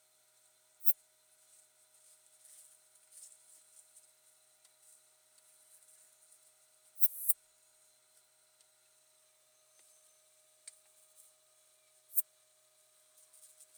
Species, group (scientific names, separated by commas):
Poecilimon nonveilleri, Orthoptera